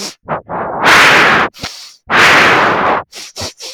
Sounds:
Sniff